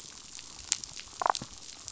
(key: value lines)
label: biophony, damselfish
recorder: SoundTrap 500